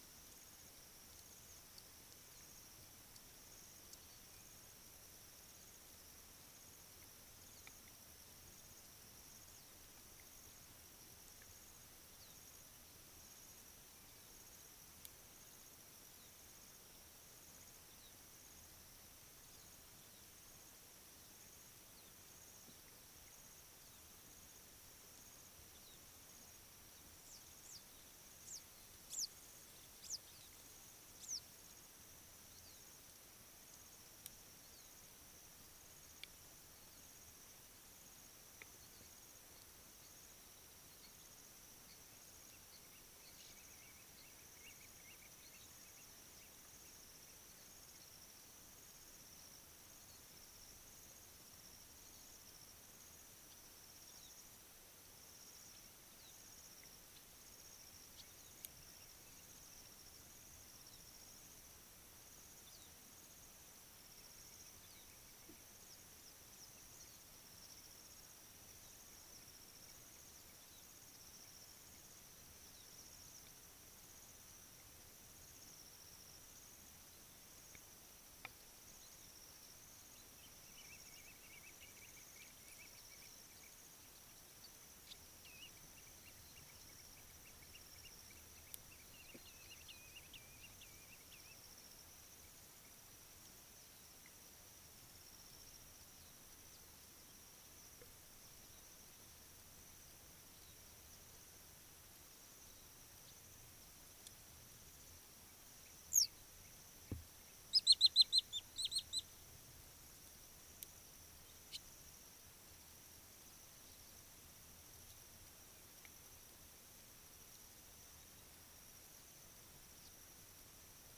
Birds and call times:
Quailfinch (Ortygospiza atricollis): 41.1s, 50.2s
Wood Sandpiper (Tringa glareola): 108.4s

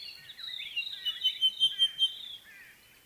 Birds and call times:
Sulphur-breasted Bushshrike (Telophorus sulfureopectus): 1.6s

